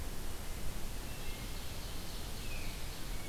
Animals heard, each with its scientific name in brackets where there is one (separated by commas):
Ovenbird (Seiurus aurocapilla), Tufted Titmouse (Baeolophus bicolor), Wood Thrush (Hylocichla mustelina)